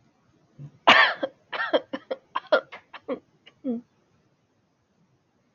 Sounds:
Cough